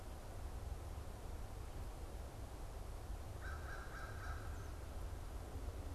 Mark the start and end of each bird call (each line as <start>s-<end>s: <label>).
3.3s-4.5s: American Crow (Corvus brachyrhynchos)